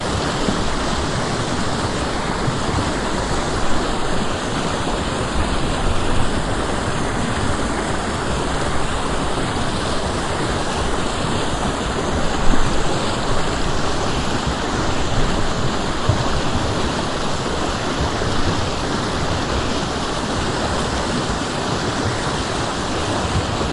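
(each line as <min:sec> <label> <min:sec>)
0:00.3 Water flows loudly and continuously outdoors. 0:23.7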